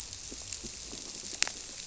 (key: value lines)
label: biophony
recorder: SoundTrap 300